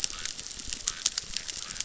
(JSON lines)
{"label": "biophony, chorus", "recorder": "SoundTrap 600"}